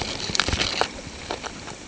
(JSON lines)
{"label": "ambient", "recorder": "HydroMoth"}